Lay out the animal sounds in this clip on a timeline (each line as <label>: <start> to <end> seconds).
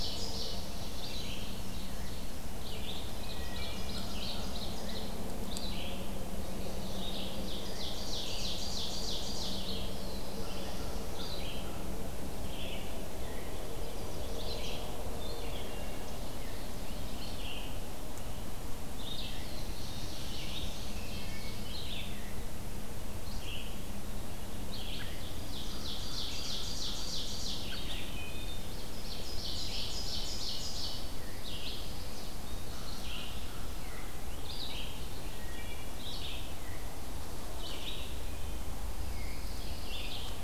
Ovenbird (Seiurus aurocapilla): 0.0 to 2.7 seconds
Red-eyed Vireo (Vireo olivaceus): 0.0 to 26.6 seconds
Ovenbird (Seiurus aurocapilla): 3.0 to 5.1 seconds
Wood Thrush (Hylocichla mustelina): 3.1 to 4.0 seconds
Ovenbird (Seiurus aurocapilla): 6.6 to 9.9 seconds
Black-throated Blue Warbler (Setophaga caerulescens): 9.5 to 11.5 seconds
Chestnut-sided Warbler (Setophaga pensylvanica): 13.6 to 14.8 seconds
Wood Thrush (Hylocichla mustelina): 15.5 to 16.1 seconds
Black-throated Blue Warbler (Setophaga caerulescens): 19.1 to 21.1 seconds
Wood Thrush (Hylocichla mustelina): 20.9 to 21.6 seconds
Ovenbird (Seiurus aurocapilla): 24.7 to 27.9 seconds
Red-eyed Vireo (Vireo olivaceus): 27.5 to 40.4 seconds
Wood Thrush (Hylocichla mustelina): 27.9 to 28.8 seconds
Ovenbird (Seiurus aurocapilla): 28.8 to 31.0 seconds
Pine Warbler (Setophaga pinus): 31.0 to 32.4 seconds
American Crow (Corvus brachyrhynchos): 32.7 to 34.1 seconds
Wood Thrush (Hylocichla mustelina): 35.2 to 36.1 seconds
Pine Warbler (Setophaga pinus): 38.8 to 40.3 seconds